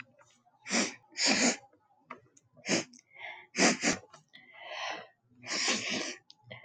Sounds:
Sniff